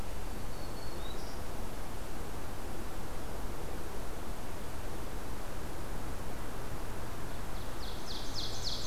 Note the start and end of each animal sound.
0.2s-1.6s: Black-throated Green Warbler (Setophaga virens)
7.5s-8.9s: Ovenbird (Seiurus aurocapilla)

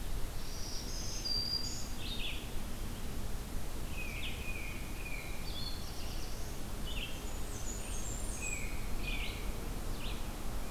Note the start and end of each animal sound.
0.0s-10.4s: Red-eyed Vireo (Vireo olivaceus)
0.3s-2.0s: Black-throated Green Warbler (Setophaga virens)
3.8s-5.6s: Tufted Titmouse (Baeolophus bicolor)
5.2s-6.6s: Black-throated Blue Warbler (Setophaga caerulescens)
6.8s-8.9s: Blackburnian Warbler (Setophaga fusca)
8.3s-9.7s: Tufted Titmouse (Baeolophus bicolor)

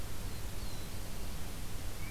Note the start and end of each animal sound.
0.0s-1.6s: Black-throated Blue Warbler (Setophaga caerulescens)

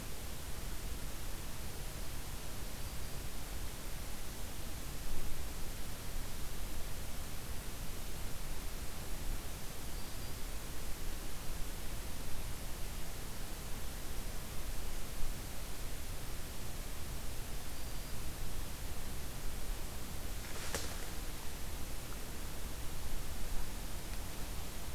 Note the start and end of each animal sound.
2.9s-3.3s: Black-throated Green Warbler (Setophaga virens)
9.7s-10.6s: Black-throated Green Warbler (Setophaga virens)
17.5s-18.4s: Black-throated Green Warbler (Setophaga virens)

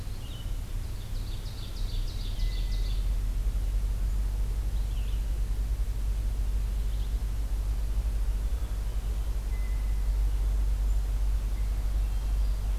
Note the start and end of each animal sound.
0.0s-7.3s: Red-eyed Vireo (Vireo olivaceus)
0.9s-3.1s: Ovenbird (Seiurus aurocapilla)
8.4s-9.2s: Black-capped Chickadee (Poecile atricapillus)
9.4s-10.2s: Blue Jay (Cyanocitta cristata)
11.8s-12.5s: Hermit Thrush (Catharus guttatus)

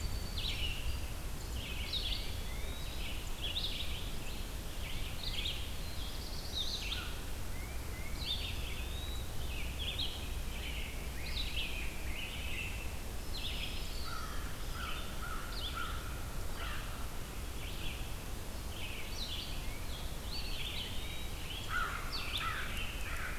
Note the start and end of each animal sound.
0.0s-1.3s: Song Sparrow (Melospiza melodia)
0.0s-8.8s: Red-eyed Vireo (Vireo olivaceus)
1.7s-3.3s: Eastern Wood-Pewee (Contopus virens)
2.0s-2.8s: Tufted Titmouse (Baeolophus bicolor)
4.8s-5.7s: Tufted Titmouse (Baeolophus bicolor)
5.6s-7.1s: Black-throated Blue Warbler (Setophaga caerulescens)
6.6s-7.3s: American Crow (Corvus brachyrhynchos)
7.4s-8.3s: Tufted Titmouse (Baeolophus bicolor)
8.0s-9.5s: Eastern Wood-Pewee (Contopus virens)
9.4s-13.1s: Rose-breasted Grosbeak (Pheucticus ludovicianus)
9.5s-23.4s: Red-eyed Vireo (Vireo olivaceus)
13.0s-14.4s: Black-throated Green Warbler (Setophaga virens)
13.9s-17.3s: American Crow (Corvus brachyrhynchos)
19.4s-20.0s: Tufted Titmouse (Baeolophus bicolor)
20.1s-21.7s: Eastern Wood-Pewee (Contopus virens)
21.6s-23.4s: American Crow (Corvus brachyrhynchos)

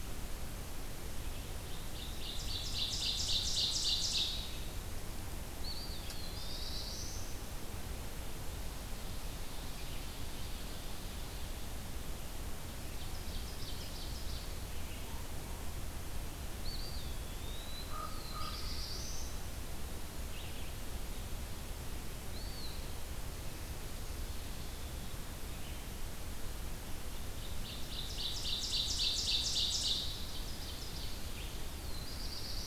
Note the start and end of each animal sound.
1.1s-4.6s: Ovenbird (Seiurus aurocapilla)
5.3s-6.9s: Eastern Wood-Pewee (Contopus virens)
5.9s-7.7s: Black-throated Blue Warbler (Setophaga caerulescens)
12.5s-14.6s: Ovenbird (Seiurus aurocapilla)
14.5s-32.7s: Red-eyed Vireo (Vireo olivaceus)
16.5s-18.1s: Eastern Wood-Pewee (Contopus virens)
17.7s-19.4s: Black-throated Blue Warbler (Setophaga caerulescens)
17.9s-18.7s: Common Raven (Corvus corax)
22.1s-23.2s: Eastern Wood-Pewee (Contopus virens)
27.3s-31.1s: Ovenbird (Seiurus aurocapilla)
31.6s-32.7s: Black-throated Blue Warbler (Setophaga caerulescens)

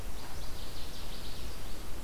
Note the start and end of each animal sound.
0.0s-1.8s: Northern Waterthrush (Parkesia noveboracensis)

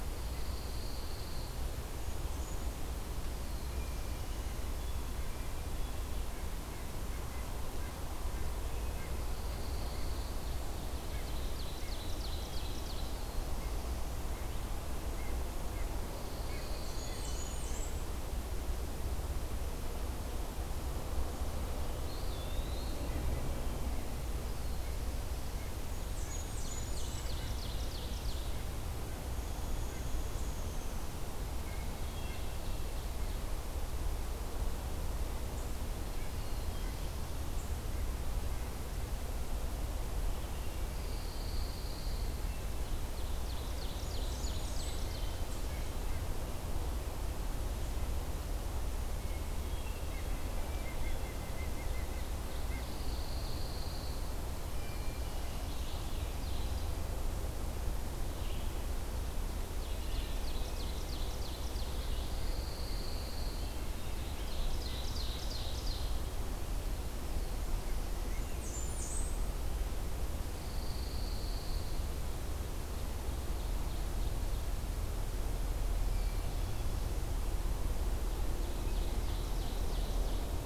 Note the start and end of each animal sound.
0.0s-1.7s: Pine Warbler (Setophaga pinus)
1.6s-3.0s: Blackburnian Warbler (Setophaga fusca)
3.3s-4.7s: Black-throated Blue Warbler (Setophaga caerulescens)
3.6s-6.2s: Hermit Thrush (Catharus guttatus)
6.2s-12.0s: Red-breasted Nuthatch (Sitta canadensis)
9.2s-10.8s: Pine Warbler (Setophaga pinus)
10.6s-13.2s: Ovenbird (Seiurus aurocapilla)
13.6s-18.3s: Red-breasted Nuthatch (Sitta canadensis)
16.0s-17.6s: Pine Warbler (Setophaga pinus)
16.7s-18.0s: Blackburnian Warbler (Setophaga fusca)
21.9s-23.3s: Eastern Wood-Pewee (Contopus virens)
22.6s-27.6s: Red-breasted Nuthatch (Sitta canadensis)
25.7s-27.5s: Blackburnian Warbler (Setophaga fusca)
26.3s-28.7s: Ovenbird (Seiurus aurocapilla)
29.3s-31.4s: Downy Woodpecker (Dryobates pubescens)
32.0s-33.0s: Hermit Thrush (Catharus guttatus)
32.0s-33.5s: Ovenbird (Seiurus aurocapilla)
35.4s-37.8s: Eastern Chipmunk (Tamias striatus)
36.0s-37.0s: Red-breasted Nuthatch (Sitta canadensis)
40.7s-42.7s: Pine Warbler (Setophaga pinus)
42.6s-45.4s: Ovenbird (Seiurus aurocapilla)
43.5s-45.2s: Blackburnian Warbler (Setophaga fusca)
49.3s-50.3s: Hermit Thrush (Catharus guttatus)
49.9s-53.1s: White-breasted Nuthatch (Sitta carolinensis)
52.6s-54.5s: Pine Warbler (Setophaga pinus)
54.6s-55.5s: Hermit Thrush (Catharus guttatus)
55.5s-60.6s: Red-eyed Vireo (Vireo olivaceus)
56.2s-57.1s: Ovenbird (Seiurus aurocapilla)
59.5s-62.3s: Ovenbird (Seiurus aurocapilla)
61.7s-63.7s: Pine Warbler (Setophaga pinus)
63.9s-66.2s: Ovenbird (Seiurus aurocapilla)
67.9s-69.6s: Blackburnian Warbler (Setophaga fusca)
70.3s-72.1s: Pine Warbler (Setophaga pinus)
72.5s-74.9s: Ovenbird (Seiurus aurocapilla)
76.0s-77.2s: Hermit Thrush (Catharus guttatus)
78.2s-80.7s: Ovenbird (Seiurus aurocapilla)

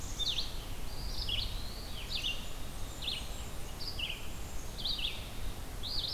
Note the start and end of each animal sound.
0.0s-0.5s: Black-capped Chickadee (Poecile atricapillus)
0.0s-6.1s: Red-eyed Vireo (Vireo olivaceus)
0.8s-2.3s: Eastern Wood-Pewee (Contopus virens)
2.1s-3.8s: Blackburnian Warbler (Setophaga fusca)
4.0s-4.9s: Black-capped Chickadee (Poecile atricapillus)

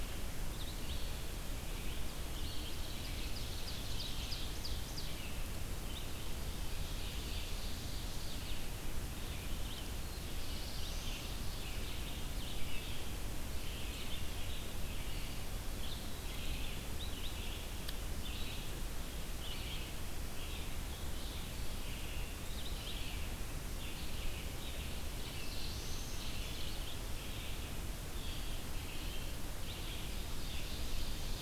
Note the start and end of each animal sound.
0.0s-25.8s: Red-eyed Vireo (Vireo olivaceus)
2.8s-5.3s: Ovenbird (Seiurus aurocapilla)
6.6s-8.5s: Ovenbird (Seiurus aurocapilla)
9.8s-11.4s: Black-throated Blue Warbler (Setophaga caerulescens)
21.3s-22.9s: Eastern Wood-Pewee (Contopus virens)
24.5s-26.6s: Black-throated Blue Warbler (Setophaga caerulescens)
26.0s-31.4s: Red-eyed Vireo (Vireo olivaceus)
29.9s-31.4s: Ovenbird (Seiurus aurocapilla)

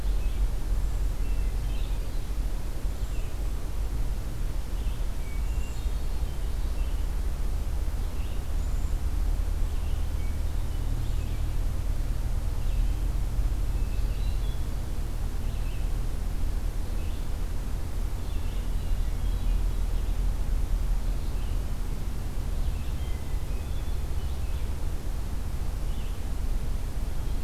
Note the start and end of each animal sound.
0.0s-6.0s: Red-eyed Vireo (Vireo olivaceus)
1.3s-2.3s: Hermit Thrush (Catharus guttatus)
2.7s-3.3s: Golden-crowned Kinglet (Regulus satrapa)
4.8s-6.3s: Hermit Thrush (Catharus guttatus)
5.4s-6.0s: Golden-crowned Kinglet (Regulus satrapa)
6.4s-27.4s: Red-eyed Vireo (Vireo olivaceus)
8.3s-9.1s: Golden-crowned Kinglet (Regulus satrapa)
9.6s-11.4s: Hermit Thrush (Catharus guttatus)
13.5s-14.8s: Hermit Thrush (Catharus guttatus)
18.7s-19.7s: Hermit Thrush (Catharus guttatus)
22.7s-24.8s: Hermit Thrush (Catharus guttatus)

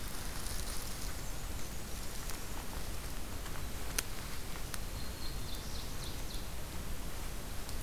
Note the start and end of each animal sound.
0.7s-2.2s: Black-and-white Warbler (Mniotilta varia)
4.7s-5.8s: Black-throated Green Warbler (Setophaga virens)
5.0s-6.9s: Ovenbird (Seiurus aurocapilla)

